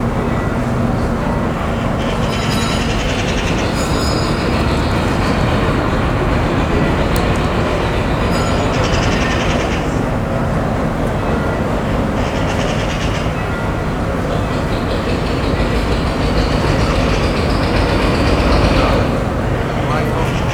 Are there drums being played?
no